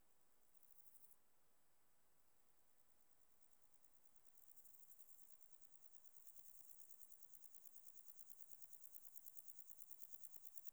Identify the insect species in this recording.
Chorthippus binotatus